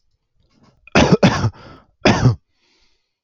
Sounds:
Cough